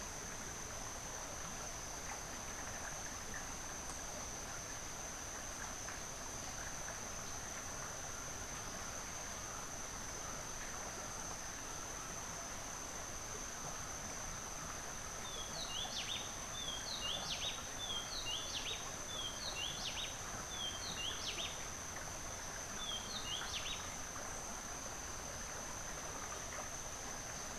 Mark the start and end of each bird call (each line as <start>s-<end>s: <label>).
15.2s-24.0s: Rufous-breasted Wren (Pheugopedius rutilus)